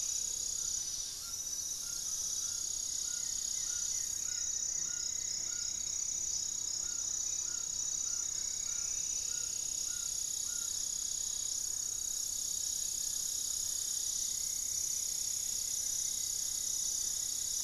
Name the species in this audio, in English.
Gray-fronted Dove, Amazonian Trogon, Striped Woodcreeper, Goeldi's Antbird, unidentified bird, Buff-throated Woodcreeper